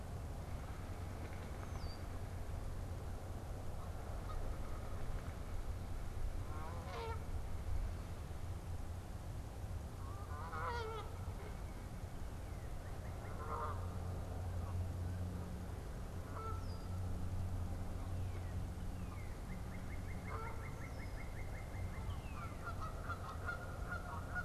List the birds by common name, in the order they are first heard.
Red-winged Blackbird, Canada Goose, Northern Cardinal